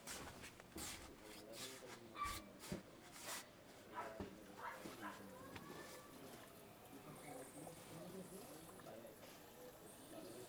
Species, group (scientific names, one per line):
Ephippiger diurnus
Orthoptera